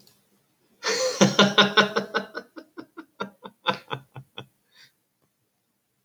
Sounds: Laughter